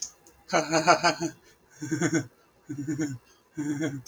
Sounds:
Laughter